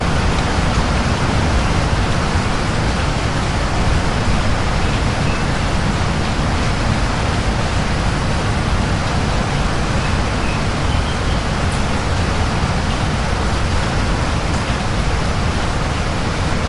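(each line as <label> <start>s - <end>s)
Continuous heavy rain and wind. 0.0s - 16.7s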